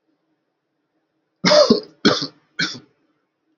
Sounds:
Cough